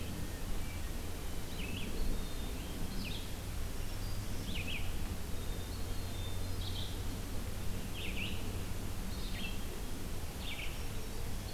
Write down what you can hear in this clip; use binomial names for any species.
Vireo olivaceus, Catharus guttatus, Poecile atricapillus, Setophaga virens